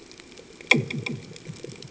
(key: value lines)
label: anthrophony, bomb
recorder: HydroMoth